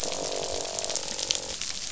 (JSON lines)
{"label": "biophony, croak", "recorder": "SoundTrap 500"}